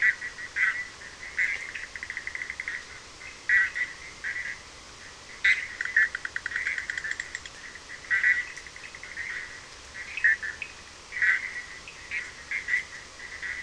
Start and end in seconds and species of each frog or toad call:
0.0	13.6	Boana bischoffi
1.7	1.8	Sphaenorhynchus surdus
10.1	10.3	Sphaenorhynchus surdus
10.6	10.8	Sphaenorhynchus surdus
4:00am

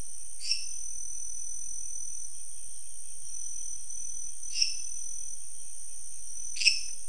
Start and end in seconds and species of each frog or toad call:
0.2	1.1	Dendropsophus minutus
4.5	5.0	Dendropsophus minutus
6.5	7.0	Dendropsophus minutus
1:15am

